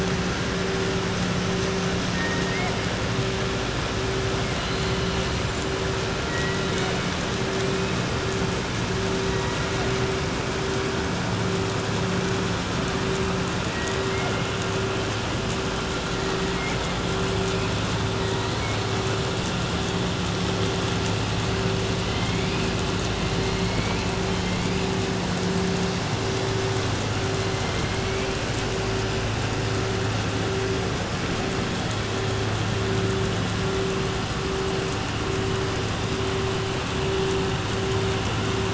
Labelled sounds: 2.1	2.8	killer whale, southern resident, 0.69 to 2.8 kHz

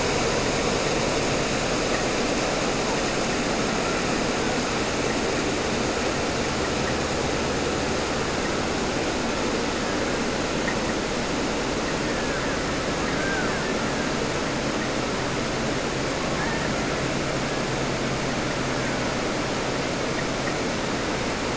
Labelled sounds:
3.7	4.7	killer whale, Bigg's (transient), 0.57 to 2.4 kHz
9.6	10.6	killer whale, Bigg's (transient), 0.79 to 2.8 kHz
11.8	14.2	killer whale, Bigg's (transient), 0.10 to 3.0 kHz
16.3	17.0	killer whale, Bigg's (transient), 0.10 to 3.0 kHz
17.3	17.8	killer whale, Bigg's (transient), 1.2 to 2.0 kHz
18.4	19.4	killer whale, Bigg's (transient), 0.91 to 2.4 kHz

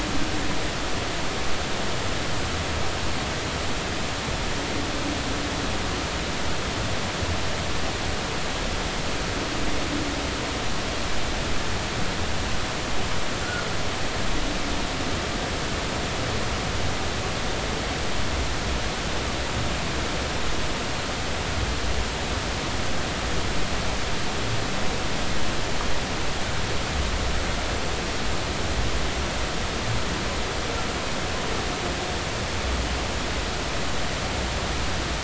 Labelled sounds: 13.4	13.7	humpback whale, 1.4 to 1.5 kHz

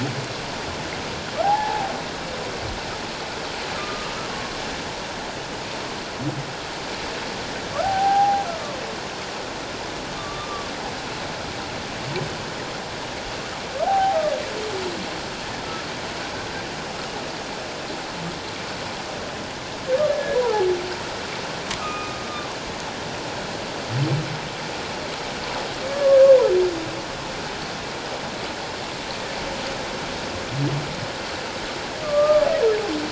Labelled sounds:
1.4	1.9	humpback whale, 0.78 to 0.97 kHz
3.7	4.1	humpback whale, 1.1 to 1.3 kHz
7.8	8.8	humpback whale, 0.78 to 1.6 kHz
10.2	10.7	humpback whale, 1.1 to 1.2 kHz
13.9	14.2	humpback whale, 0.78 to 0.94 kHz
20.1	20.4	humpback whale, 1.6 to 1.8 kHz
21.8	22.2	humpback whale, 1.1 to 2.5 kHz
25.9	26.2	humpback whale, 1.1 to 1.2 kHz
32.0	32.5	humpback whale, 1.1 to 1.3 kHz

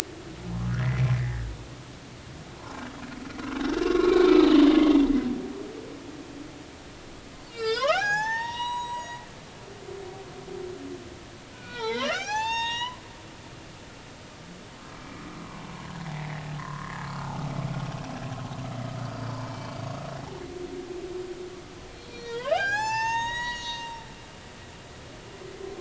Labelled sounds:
2.6	2.8	humpback whale, 0.86 to 1.1 kHz
3.8	4.4	humpback whale, 0.96 to 4.1 kHz
7.4	9.2	humpback whale, 0.80 to 7.8 kHz
11.5	13.0	humpback whale, 0.80 to 7.6 kHz
16.6	16.9	humpback whale, 0.96 to 1.2 kHz
19.0	19.3	humpback whale, 4.5 to 4.8 kHz
21.9	24.6	humpback whale, 0.80 to 8.0 kHz

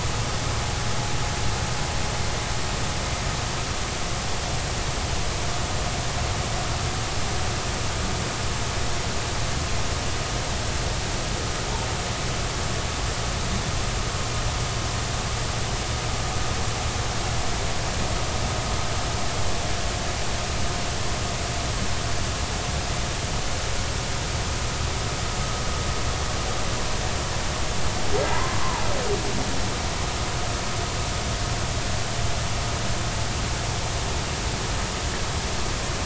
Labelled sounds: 28.2	28.8	humpback whale, 0.80 to 2.1 kHz

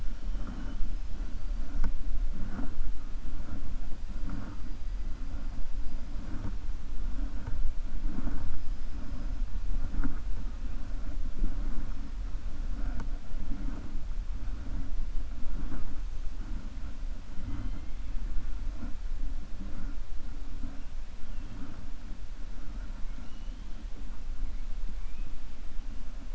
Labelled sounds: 23.0	23.7	killer whale, 1.4 to 3.9 kHz

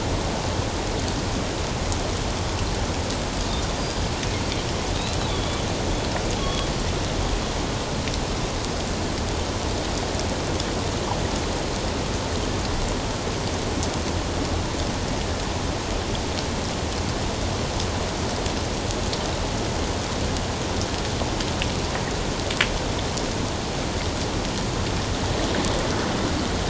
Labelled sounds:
5.3	5.6	Pacific white-sided dolphin, 3.2 to 3.6 kHz
6.4	6.7	Pacific white-sided dolphin, 3.2 to 3.4 kHz

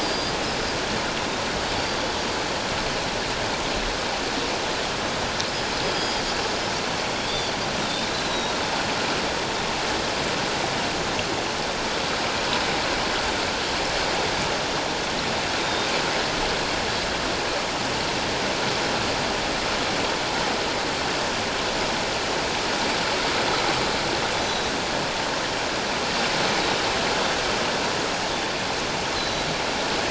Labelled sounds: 0.0	0.4	Pacific white-sided dolphin, 4.7 to 5.0 kHz
1.8	2.1	Pacific white-sided dolphin, 4.6 to 4.7 kHz
5.9	6.2	Pacific white-sided dolphin, 3.2 to 5.3 kHz
7.3	7.5	Pacific white-sided dolphin, 3.3 to 4.8 kHz
7.8	8.5	Pacific white-sided dolphin, 3.5 to 4.2 kHz
15.6	15.9	Pacific white-sided dolphin, 3.6 to 3.8 kHz
24.4	24.7	Pacific white-sided dolphin, 3.8 to 6.2 kHz
29.2	29.5	Pacific white-sided dolphin, 3.9 to 4.2 kHz

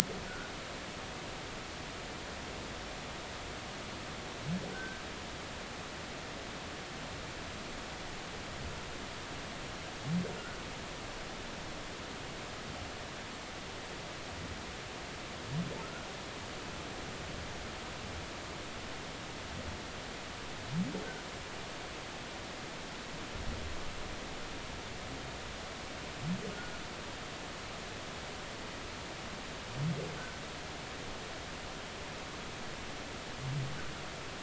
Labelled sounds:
4.7	5.0	humpback whale, 1.4 to 1.6 kHz
15.8	16.1	humpback whale, 1.2 to 1.5 kHz
26.5	26.8	humpback whale, 1.3 to 1.5 kHz

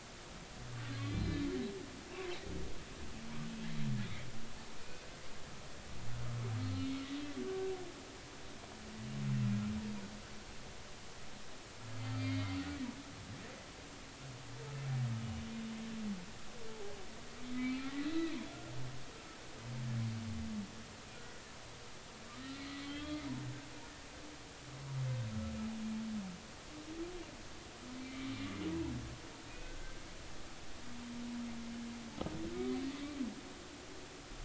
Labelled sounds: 1.0	1.5	humpback whale, 2.3 to 4.2 kHz
6.6	6.9	humpback whale, 4.1 to 4.3 kHz
8.5	8.7	humpback whale, 1.5 to 1.6 kHz
12.2	12.6	humpback whale, 2.0 to 3.8 kHz
16.7	16.9	humpback whale, 0.80 to 0.90 kHz
17.6	18.3	humpback whale, 1.8 to 4.0 kHz
22.3	23.2	humpback whale, 1.1 to 4.2 kHz
28.0	28.3	humpback whale, 2.1 to 2.4 kHz
29.5	30.0	humpback whale, 1.5 to 2.6 kHz

